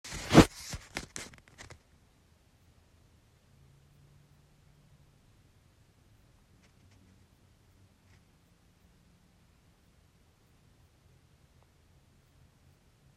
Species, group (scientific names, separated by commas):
Tessellana tessellata, Orthoptera